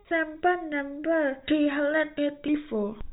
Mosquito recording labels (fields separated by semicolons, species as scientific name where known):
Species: no mosquito; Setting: cup